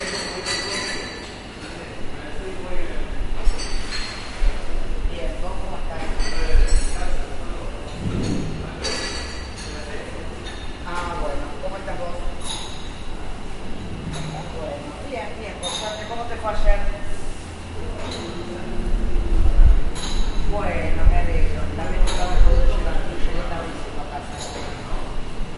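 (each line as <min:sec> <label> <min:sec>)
0:00.0 Several people are talking indoors with overlapping voices. 0:25.6
0:00.0 Clicking and clattering sounds of a ceramic object. 0:01.3
0:03.3 Clicking and clattering sounds of a ceramic object. 0:04.2
0:06.1 Clicking and clattering sounds of a ceramic object. 0:07.1
0:08.8 Clicking and clattering sounds of a ceramic object. 0:11.7
0:12.3 Clicking and clattering sounds of a ceramic object. 0:12.9
0:15.6 Clicking and clattering sounds of a ceramic object. 0:16.2
0:19.8 Clicking and clattering sounds of a ceramic object. 0:20.3
0:22.0 Clicking and clattering sounds of a ceramic object. 0:22.5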